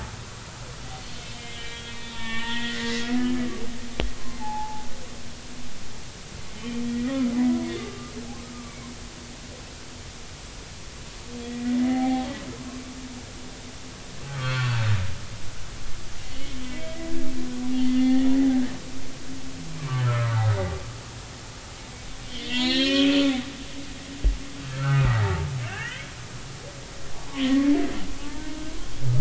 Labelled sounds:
1.2	3.5	humpback whale, 1.4 to 3.6 kHz
4.1	4.9	humpback whale, 0.80 to 1.1 kHz
6.6	8.1	humpback whale, 1.1 to 3.2 kHz
8.5	8.8	humpback whale, 1.1 to 1.2 kHz
11.4	12.8	humpback whale, 0.80 to 2.1 kHz
14.2	14.8	humpback whale, 1.1 to 1.6 kHz
16.6	18.3	humpback whale, 1.8 to 3.4 kHz
19.8	20.4	humpback whale, 0.99 to 1.6 kHz
22.4	23.1	humpback whale, 1.7 to 4.7 kHz
24.7	25.2	humpback whale, 1.2 to 2.2 kHz
25.7	26.1	humpback whale, 1.4 to 3.3 kHz
27.4	28.5	humpback whale, 0.83 to 3.5 kHz

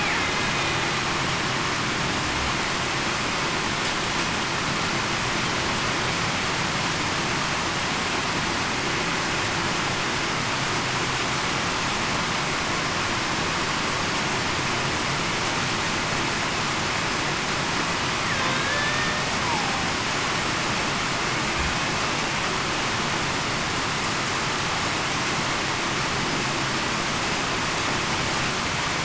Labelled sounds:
18.5	19.2	killer whale, Bigg's (transient), 1.5 to 3.7 kHz

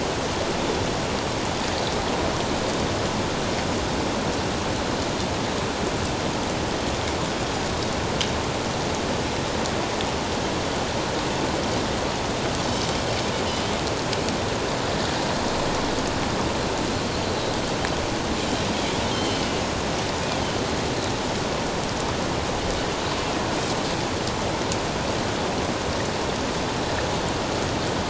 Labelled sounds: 19.1	19.6	Pacific white-sided dolphin, 2.8 to 3.2 kHz

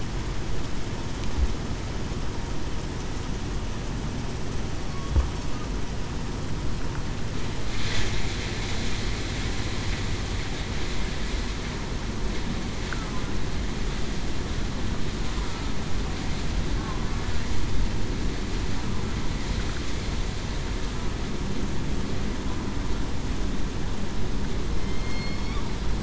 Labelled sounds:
24.7	25.6	killer whale, southern resident, 2.1 to 4.5 kHz

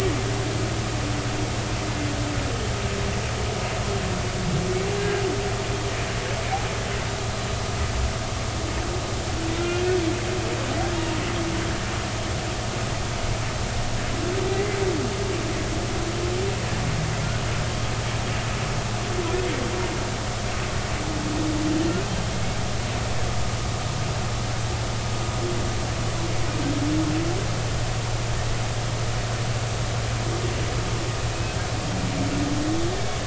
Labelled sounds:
10.9	11.2	humpback whale, 0.86 to 0.99 kHz
31.3	31.6	humpback whale, 2.5 to 2.7 kHz

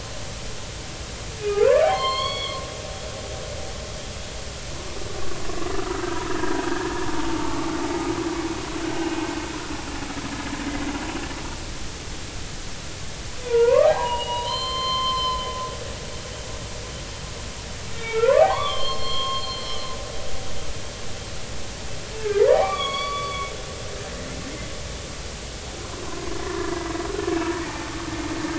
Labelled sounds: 1.4	2.6	humpback whale, 0.80 to 4.5 kHz
5.7	6.6	humpback whale, 1.2 to 1.8 kHz
7.1	7.6	humpback whale, 0.83 to 0.96 kHz
10.7	10.9	humpback whale, 1.9 to 2.1 kHz
13.4	15.6	humpback whale, 0.80 to 5.2 kHz
17.9	19.9	humpback whale, 0.80 to 4.4 kHz
22.5	23.5	humpback whale, 0.99 to 4.7 kHz
26.4	26.7	humpback whale, 1.6 to 1.9 kHz
27.6	28.0	humpback whale, 0.83 to 0.93 kHz

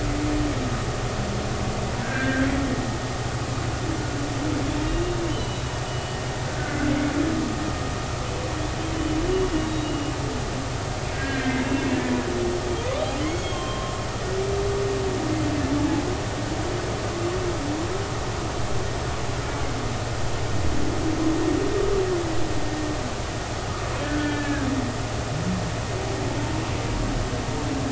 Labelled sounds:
2.0	2.5	humpback whale, 1.4 to 1.9 kHz
5.3	6.2	humpback whale, 2.9 to 3.1 kHz
9.0	10.1	humpback whale, 2.8 to 3.9 kHz
11.1	11.7	humpback whale, 1.5 to 2.2 kHz
13.2	14.0	humpback whale, 1.0 to 4.4 kHz
24.0	24.7	humpback whale, 1.4 to 1.8 kHz

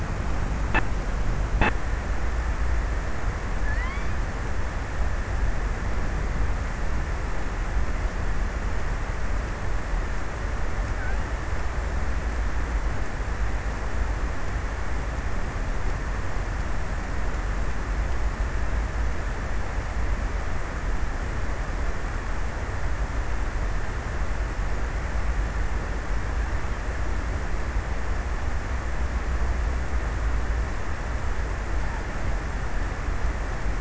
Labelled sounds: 2.8	4.7	killer whale, offshore, 0.35 to 5.4 kHz

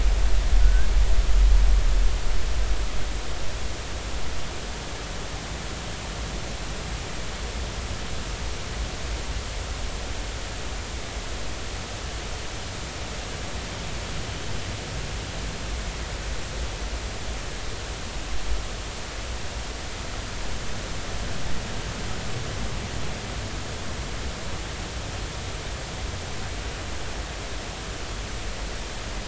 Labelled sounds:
0.6	0.9	humpback whale, 1.4 to 1.7 kHz

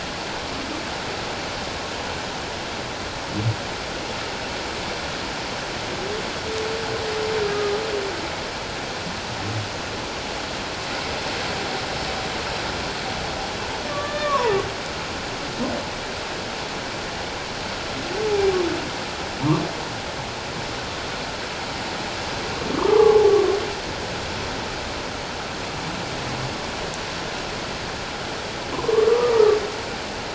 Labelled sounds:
7.4	7.8	humpback whale, 1.2 to 1.3 kHz
13.9	14.5	humpback whale, 0.88 to 1.9 kHz
22.7	23.3	humpback whale, 0.78 to 1.3 kHz
28.7	29.3	humpback whale, 0.94 to 1.3 kHz

